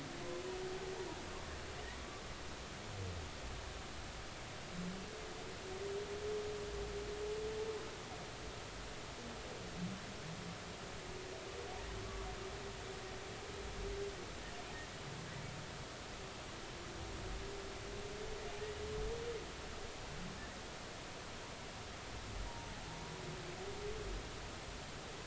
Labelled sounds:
22.5	22.8	humpback whale, 0.80 to 0.99 kHz

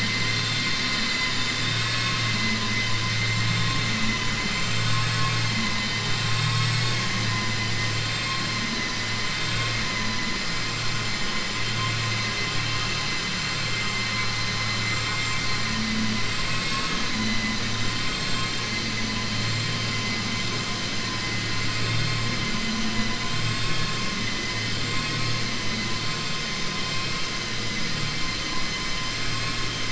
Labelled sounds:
1.5	2.2	vessel noise, 1.1 to 4.5 kHz

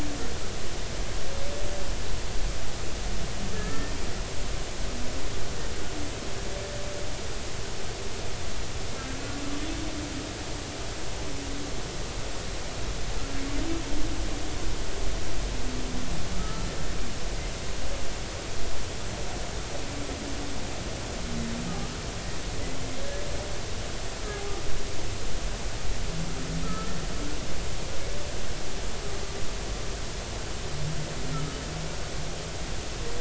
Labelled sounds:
3.5	3.9	humpback whale, 1.6 to 1.9 kHz
16.3	16.7	humpback whale, 1.2 to 1.4 kHz
23.0	23.2	humpback whale, 1.6 to 1.8 kHz
26.6	27.0	humpback whale, 1.2 to 1.4 kHz
31.3	31.6	humpback whale, 1.2 to 1.4 kHz

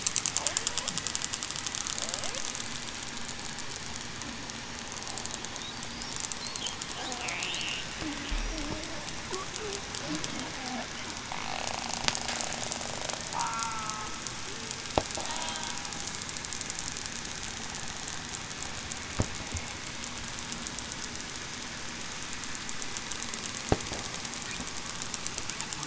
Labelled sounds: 7.0	7.4	killer whale, southern resident, 0.68 to 0.80 kHz
8.0	8.4	killer whale, southern resident, 0.26 to 0.38 kHz
13.4	14.2	killer whale, southern resident, 1.0 to 1.4 kHz

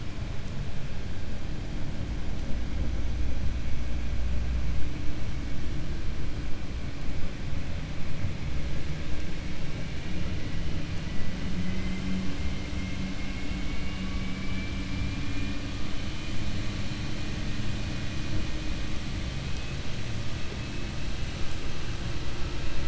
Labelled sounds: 11.6	12.2	vessel noise, 1.4 to 3.1 kHz

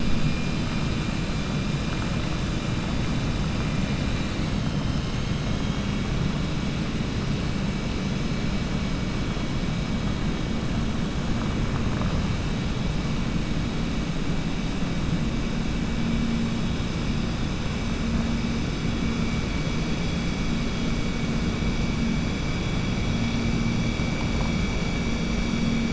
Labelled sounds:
5.1	6.0	killer whale, 2.2 to 3.9 kHz

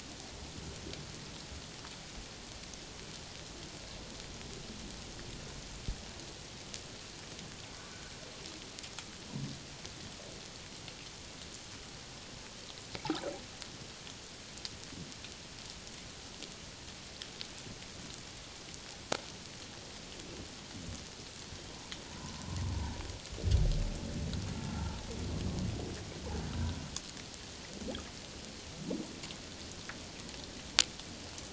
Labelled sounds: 22.1	22.4	humpback whale, 0.88 to 1.1 kHz
24.6	24.9	humpback whale, 0.81 to 1.4 kHz

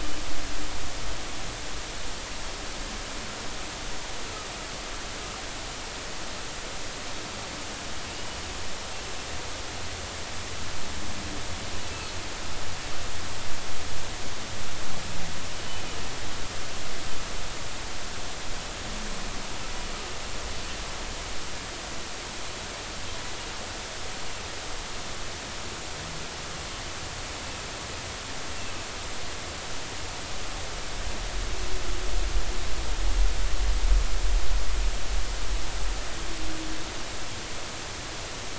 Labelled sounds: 8.1	8.4	humpback whale, 2.8 to 3.0 kHz

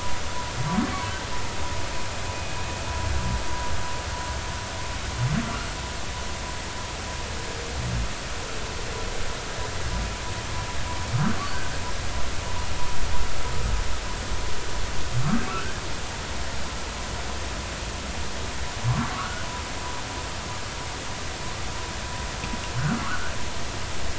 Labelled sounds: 15.5	15.8	humpback whale, 1.3 to 1.6 kHz
19.1	19.5	humpback whale, 1.1 to 1.6 kHz
23.0	23.3	humpback whale, 1.0 to 1.6 kHz

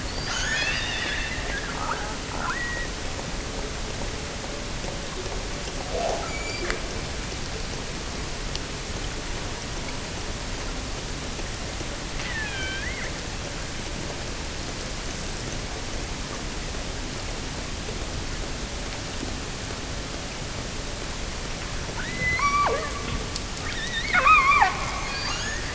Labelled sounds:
0.1	2.9	killer whale, offshore, 0.43 to 6.9 kHz
6.1	6.8	killer whale, offshore, 1.1 to 7.4 kHz
12.2	13.2	killer whale, offshore, 1.3 to 3.6 kHz
21.9	23.0	killer whale, offshore, 0.36 to 6.0 kHz
23.6	25.7	killer whale, offshore, 0.52 to 7.0 kHz

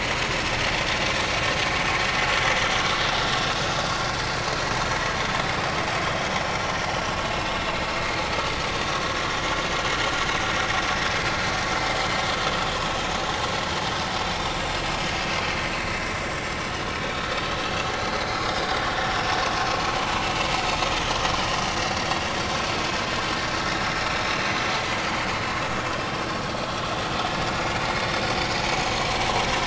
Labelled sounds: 6.5	6.7	vessel noise, 5.5 to 5.7 kHz
7.4	7.7	vessel noise, 3.6 to 3.8 kHz
16.6	17.3	vessel noise, 3.6 to 5.2 kHz
18.5	18.8	vessel noise, 3.6 to 3.7 kHz
21.9	22.2	vessel noise, 4.4 to 4.7 kHz

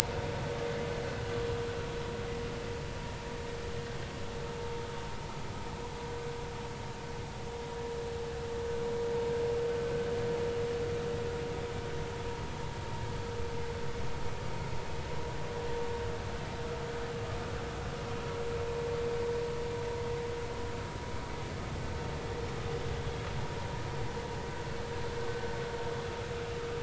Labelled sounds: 4.6	4.8	vessel noise, 0.86 to 0.96 kHz

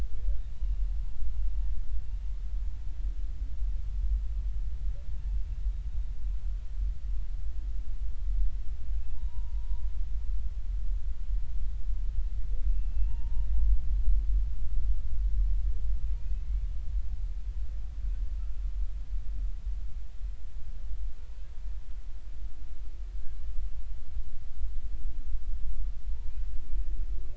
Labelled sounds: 0.6	0.9	humpback whale, 2.8 to 2.9 kHz
9.0	9.8	humpback whale, 0.83 to 1.0 kHz
12.7	13.5	humpback whale, 0.86 to 2.8 kHz
16.2	16.5	humpback whale, 2.3 to 2.6 kHz
26.1	26.4	humpback whale, 0.83 to 0.99 kHz

